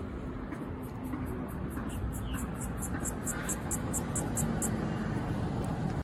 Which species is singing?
Yoyetta celis